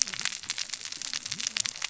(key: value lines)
label: biophony, cascading saw
recorder: SoundTrap 600 or HydroMoth